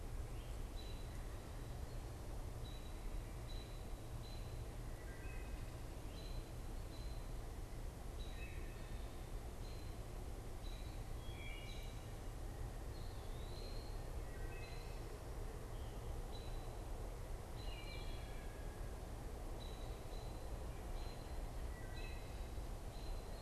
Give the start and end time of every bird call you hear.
[0.00, 23.41] American Robin (Turdus migratorius)
[0.00, 23.41] Eastern Wood-Pewee (Contopus virens)
[0.00, 23.41] Wood Thrush (Hylocichla mustelina)

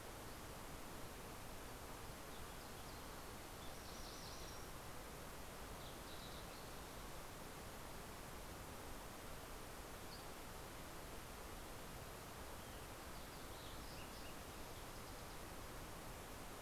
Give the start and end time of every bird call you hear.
[3.65, 4.85] MacGillivray's Warbler (Geothlypis tolmiei)
[5.35, 7.55] Green-tailed Towhee (Pipilo chlorurus)
[9.55, 10.75] Dusky Flycatcher (Empidonax oberholseri)
[11.65, 13.15] Olive-sided Flycatcher (Contopus cooperi)
[12.75, 15.95] Fox Sparrow (Passerella iliaca)

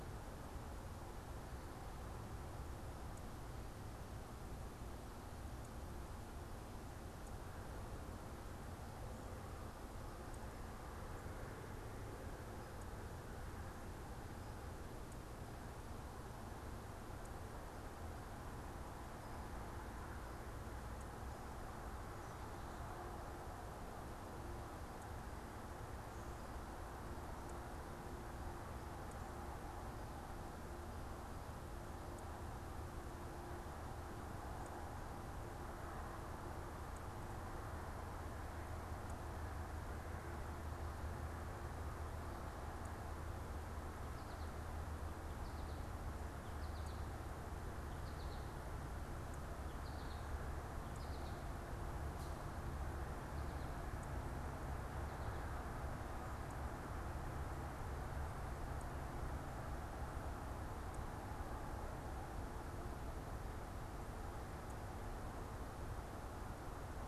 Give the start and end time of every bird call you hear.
[43.97, 51.37] American Goldfinch (Spinus tristis)

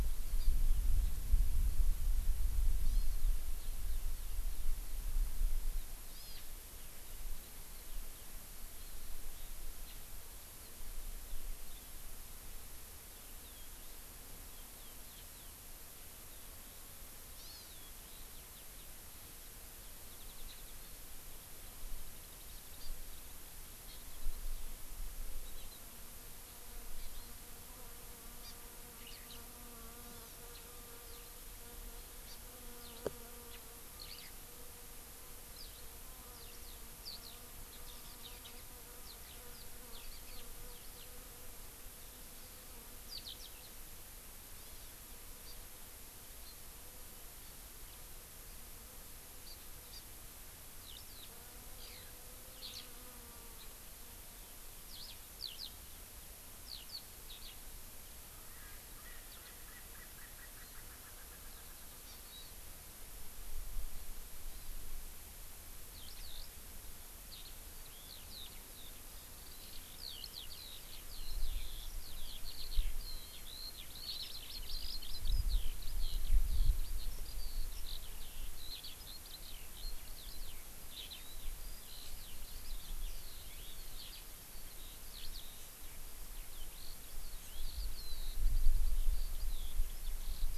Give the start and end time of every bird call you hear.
[0.38, 0.48] Hawaii Amakihi (Chlorodrepanis virens)
[2.88, 3.18] Hawaii Amakihi (Chlorodrepanis virens)
[3.18, 4.68] Eurasian Skylark (Alauda arvensis)
[6.08, 6.38] Hawaii Amakihi (Chlorodrepanis virens)
[6.78, 6.98] Eurasian Skylark (Alauda arvensis)
[7.88, 8.28] Eurasian Skylark (Alauda arvensis)
[8.78, 8.98] Hawaii Amakihi (Chlorodrepanis virens)
[9.88, 9.98] House Finch (Haemorhous mexicanus)
[13.38, 13.68] Warbling White-eye (Zosterops japonicus)
[14.78, 15.58] Warbling White-eye (Zosterops japonicus)
[17.38, 17.68] Hawaii Amakihi (Chlorodrepanis virens)
[17.68, 17.98] Warbling White-eye (Zosterops japonicus)
[17.98, 18.98] Eurasian Skylark (Alauda arvensis)
[19.98, 20.78] Warbling White-eye (Zosterops japonicus)
[22.18, 23.08] Warbling White-eye (Zosterops japonicus)
[22.78, 22.88] Hawaii Amakihi (Chlorodrepanis virens)
[23.88, 23.98] Hawaii Amakihi (Chlorodrepanis virens)
[26.98, 27.08] Hawaii Amakihi (Chlorodrepanis virens)
[28.38, 28.58] Hawaii Amakihi (Chlorodrepanis virens)
[28.98, 29.38] Eurasian Skylark (Alauda arvensis)
[29.98, 30.38] Hawaii Amakihi (Chlorodrepanis virens)
[30.98, 31.28] Eurasian Skylark (Alauda arvensis)
[32.18, 32.38] Hawaii Amakihi (Chlorodrepanis virens)
[32.78, 32.98] Eurasian Skylark (Alauda arvensis)
[33.48, 33.58] Eurasian Skylark (Alauda arvensis)
[33.98, 34.28] Eurasian Skylark (Alauda arvensis)
[35.48, 35.78] Eurasian Skylark (Alauda arvensis)
[36.28, 37.38] Eurasian Skylark (Alauda arvensis)
[37.68, 38.58] Eurasian Skylark (Alauda arvensis)
[38.98, 40.48] Eurasian Skylark (Alauda arvensis)
[40.88, 41.08] Eurasian Skylark (Alauda arvensis)
[43.08, 43.48] Eurasian Skylark (Alauda arvensis)
[44.48, 44.88] Hawaii Amakihi (Chlorodrepanis virens)
[45.38, 45.58] Hawaii Amakihi (Chlorodrepanis virens)
[46.48, 46.58] Hawaii Amakihi (Chlorodrepanis virens)
[49.48, 49.58] Hawaii Amakihi (Chlorodrepanis virens)
[49.88, 49.98] Hawaii Amakihi (Chlorodrepanis virens)
[50.78, 51.28] Eurasian Skylark (Alauda arvensis)
[51.78, 52.08] Eurasian Skylark (Alauda arvensis)
[52.58, 52.88] Eurasian Skylark (Alauda arvensis)
[53.48, 53.68] Eurasian Skylark (Alauda arvensis)
[54.78, 55.68] Eurasian Skylark (Alauda arvensis)
[56.58, 56.98] Eurasian Skylark (Alauda arvensis)
[57.28, 57.58] Eurasian Skylark (Alauda arvensis)
[58.28, 61.88] Erckel's Francolin (Pternistis erckelii)
[59.28, 59.48] Eurasian Skylark (Alauda arvensis)
[62.08, 62.18] Hawaii Amakihi (Chlorodrepanis virens)
[64.48, 64.78] Hawaii Amakihi (Chlorodrepanis virens)
[65.88, 66.48] Eurasian Skylark (Alauda arvensis)
[67.28, 67.48] Eurasian Skylark (Alauda arvensis)
[67.78, 90.57] Eurasian Skylark (Alauda arvensis)
[74.28, 75.18] Hawaii Amakihi (Chlorodrepanis virens)

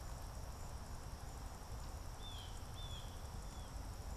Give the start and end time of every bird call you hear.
[1.93, 4.13] Blue Jay (Cyanocitta cristata)

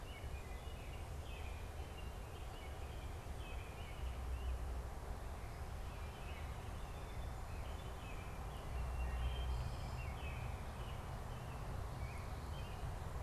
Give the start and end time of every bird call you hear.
[0.00, 13.20] American Robin (Turdus migratorius)
[6.50, 7.40] Song Sparrow (Melospiza melodia)
[8.70, 10.20] Wood Thrush (Hylocichla mustelina)

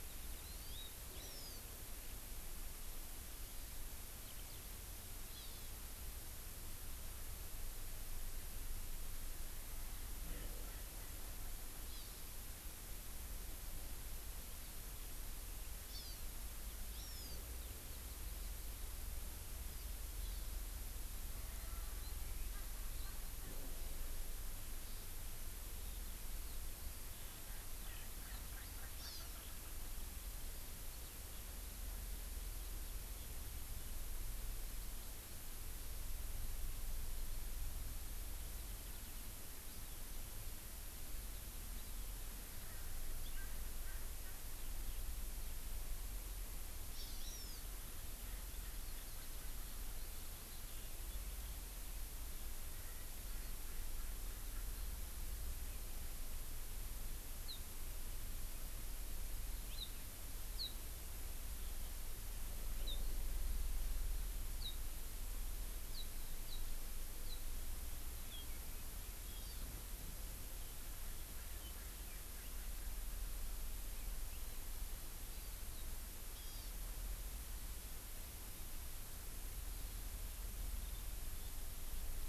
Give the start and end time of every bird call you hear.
[0.42, 1.62] Hawaii Amakihi (Chlorodrepanis virens)
[4.22, 4.62] Eurasian Skylark (Alauda arvensis)
[5.32, 5.72] Hawaii Amakihi (Chlorodrepanis virens)
[10.22, 11.62] Erckel's Francolin (Pternistis erckelii)
[11.82, 12.32] Hawaii Amakihi (Chlorodrepanis virens)
[15.92, 16.32] Hawaii Amakihi (Chlorodrepanis virens)
[16.92, 17.42] Hawaii Amakihi (Chlorodrepanis virens)
[20.22, 20.52] Hawaii Amakihi (Chlorodrepanis virens)
[21.42, 23.72] Erckel's Francolin (Pternistis erckelii)
[24.72, 31.72] Eurasian Skylark (Alauda arvensis)
[27.42, 30.12] Erckel's Francolin (Pternistis erckelii)
[28.92, 29.32] Hawaii Amakihi (Chlorodrepanis virens)
[38.82, 39.32] Warbling White-eye (Zosterops japonicus)
[42.62, 44.32] Erckel's Francolin (Pternistis erckelii)
[44.62, 45.02] Eurasian Skylark (Alauda arvensis)
[46.92, 47.62] Hawaii Amakihi (Chlorodrepanis virens)
[48.22, 50.22] Erckel's Francolin (Pternistis erckelii)
[48.82, 51.82] Eurasian Skylark (Alauda arvensis)
[52.62, 55.02] Erckel's Francolin (Pternistis erckelii)
[69.22, 69.62] Hawaii Amakihi (Chlorodrepanis virens)
[70.92, 73.32] Erckel's Francolin (Pternistis erckelii)
[75.32, 75.62] Hawaii Amakihi (Chlorodrepanis virens)
[76.32, 76.72] Hawaii Amakihi (Chlorodrepanis virens)

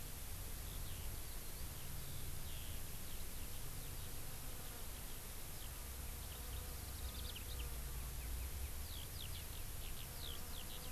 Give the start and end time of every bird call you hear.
[0.60, 4.70] Eurasian Skylark (Alauda arvensis)
[5.50, 5.70] Eurasian Skylark (Alauda arvensis)
[6.20, 10.91] Eurasian Skylark (Alauda arvensis)

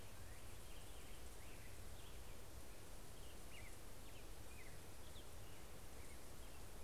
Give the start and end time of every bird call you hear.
[0.00, 6.06] Black-headed Grosbeak (Pheucticus melanocephalus)

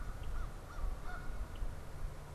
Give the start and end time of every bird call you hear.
[0.00, 1.49] American Crow (Corvus brachyrhynchos)
[0.00, 2.35] Canada Goose (Branta canadensis)
[1.49, 1.69] unidentified bird

